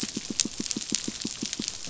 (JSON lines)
{"label": "biophony, pulse", "recorder": "SoundTrap 500"}